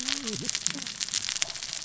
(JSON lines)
{"label": "biophony, cascading saw", "recorder": "SoundTrap 600 or HydroMoth"}